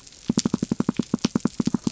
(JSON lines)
{"label": "biophony", "recorder": "SoundTrap 300"}